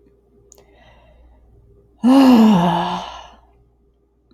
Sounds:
Sigh